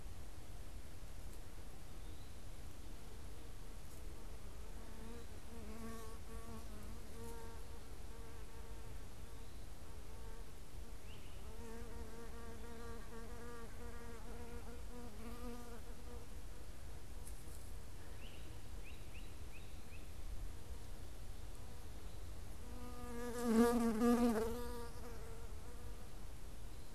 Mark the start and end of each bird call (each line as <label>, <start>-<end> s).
Great Crested Flycatcher (Myiarchus crinitus), 10.9-11.5 s
Great Crested Flycatcher (Myiarchus crinitus), 17.9-20.3 s